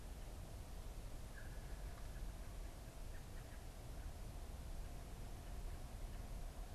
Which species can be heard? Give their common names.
American Robin